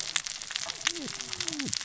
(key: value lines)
label: biophony, cascading saw
recorder: SoundTrap 600 or HydroMoth